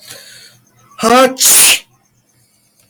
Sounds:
Sneeze